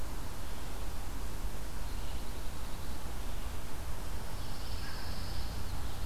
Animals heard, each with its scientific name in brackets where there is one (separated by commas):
Pine Warbler (Setophaga pinus)